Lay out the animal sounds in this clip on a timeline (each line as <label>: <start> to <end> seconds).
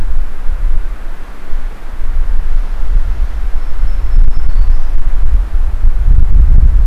Black-throated Green Warbler (Setophaga virens): 3.5 to 5.1 seconds